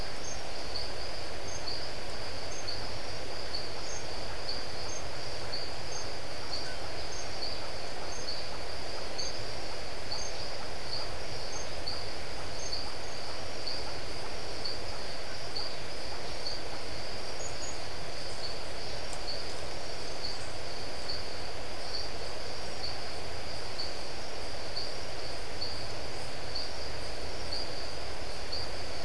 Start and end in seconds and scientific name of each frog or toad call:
0.0	27.4	Leptodactylus notoaktites
0.0	29.0	Adenomera marmorata